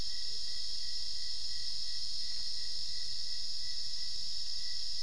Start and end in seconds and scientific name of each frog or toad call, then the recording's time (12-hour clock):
none
12:00am